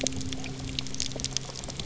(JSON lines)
{"label": "anthrophony, boat engine", "recorder": "SoundTrap 300"}